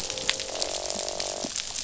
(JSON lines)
{"label": "biophony, croak", "recorder": "SoundTrap 500"}